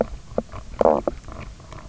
{"label": "biophony, knock croak", "recorder": "SoundTrap 300"}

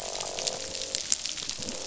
{"label": "biophony, croak", "recorder": "SoundTrap 500"}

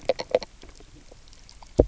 {"label": "biophony, knock croak", "recorder": "SoundTrap 300"}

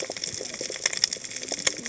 {"label": "biophony, cascading saw", "recorder": "HydroMoth"}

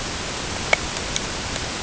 {"label": "ambient", "recorder": "HydroMoth"}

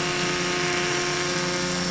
{"label": "anthrophony, boat engine", "recorder": "SoundTrap 500"}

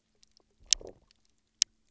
{"label": "biophony, low growl", "recorder": "SoundTrap 300"}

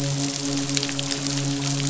{"label": "biophony, midshipman", "recorder": "SoundTrap 500"}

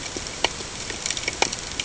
{"label": "ambient", "recorder": "HydroMoth"}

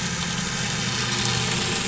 {"label": "anthrophony, boat engine", "recorder": "SoundTrap 500"}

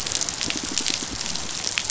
{"label": "biophony, pulse", "recorder": "SoundTrap 500"}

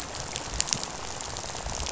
{"label": "biophony, rattle", "recorder": "SoundTrap 500"}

